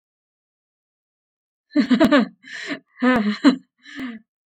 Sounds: Laughter